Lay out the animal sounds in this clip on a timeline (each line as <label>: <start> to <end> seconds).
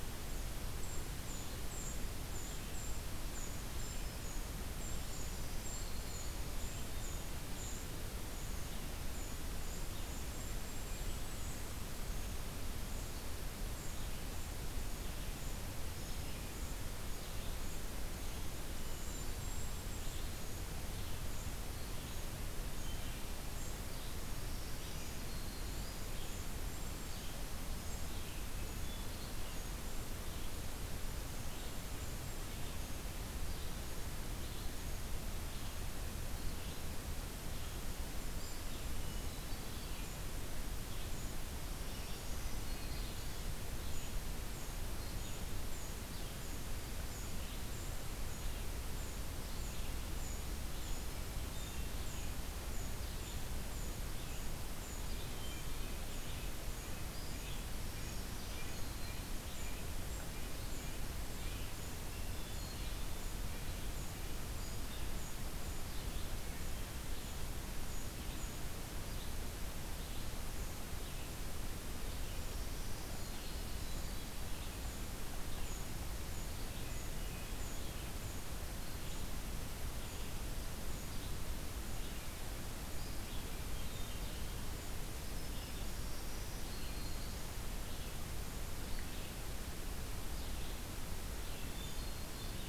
Red-eyed Vireo (Vireo olivaceus): 0.0 to 51.1 seconds
Golden-crowned Kinglet (Regulus satrapa): 0.0 to 52.3 seconds
Black-throated Green Warbler (Setophaga virens): 3.5 to 4.3 seconds
Black-throated Green Warbler (Setophaga virens): 5.0 to 6.4 seconds
Hermit Thrush (Catharus guttatus): 18.7 to 19.6 seconds
Black-throated Green Warbler (Setophaga virens): 24.4 to 25.9 seconds
Hermit Thrush (Catharus guttatus): 28.5 to 29.7 seconds
Hermit Thrush (Catharus guttatus): 38.9 to 40.0 seconds
Black-throated Green Warbler (Setophaga virens): 41.8 to 43.3 seconds
Hermit Thrush (Catharus guttatus): 51.2 to 52.1 seconds
Red-eyed Vireo (Vireo olivaceus): 51.8 to 92.7 seconds
Golden-crowned Kinglet (Regulus satrapa): 52.7 to 86.2 seconds
Hermit Thrush (Catharus guttatus): 55.1 to 56.3 seconds
Red-breasted Nuthatch (Sitta canadensis): 55.9 to 61.7 seconds
Black-throated Green Warbler (Setophaga virens): 57.7 to 59.4 seconds
Hermit Thrush (Catharus guttatus): 62.0 to 63.0 seconds
Black-throated Green Warbler (Setophaga virens): 72.4 to 73.8 seconds
Hermit Thrush (Catharus guttatus): 73.3 to 74.5 seconds
Hermit Thrush (Catharus guttatus): 76.8 to 77.6 seconds
Hermit Thrush (Catharus guttatus): 83.6 to 84.5 seconds
Black-throated Green Warbler (Setophaga virens): 85.6 to 87.2 seconds
Hermit Thrush (Catharus guttatus): 91.5 to 92.6 seconds